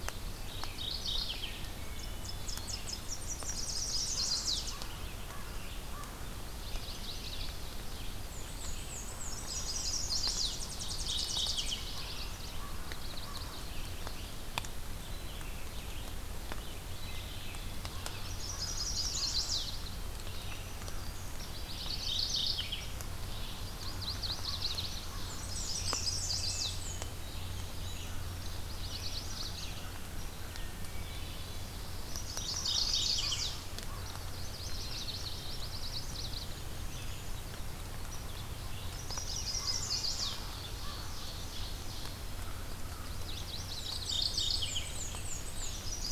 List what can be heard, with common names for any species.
Red-eyed Vireo, Mourning Warbler, Wood Thrush, Tennessee Warbler, Chestnut-sided Warbler, American Crow, Yellow-rumped Warbler, Black-and-white Warbler, Black-throated Green Warbler, Brown Creeper, Ovenbird